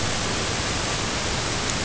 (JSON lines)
{"label": "ambient", "recorder": "HydroMoth"}